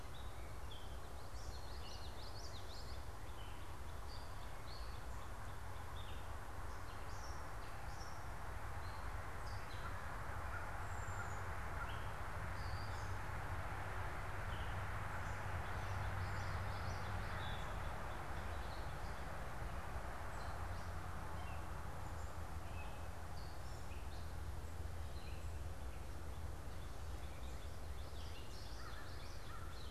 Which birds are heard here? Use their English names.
Gray Catbird, Common Yellowthroat, Northern Cardinal, American Crow